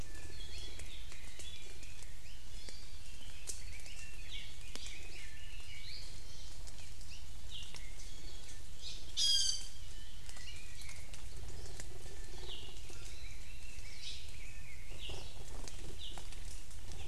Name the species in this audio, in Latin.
Drepanis coccinea, Leiothrix lutea, Loxops mana, Himatione sanguinea